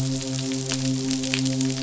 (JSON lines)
{"label": "biophony, midshipman", "recorder": "SoundTrap 500"}